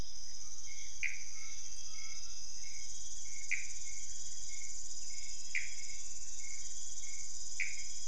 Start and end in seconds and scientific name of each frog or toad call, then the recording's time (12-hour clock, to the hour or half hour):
1.0	1.3	Pithecopus azureus
3.5	3.8	Pithecopus azureus
5.4	5.9	Pithecopus azureus
7.6	8.0	Pithecopus azureus
~2am